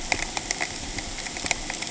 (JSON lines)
{"label": "ambient", "recorder": "HydroMoth"}